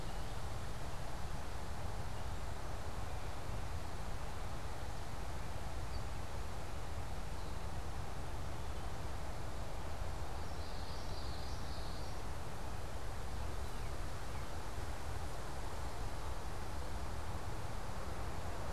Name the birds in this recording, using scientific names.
unidentified bird, Geothlypis trichas, Turdus migratorius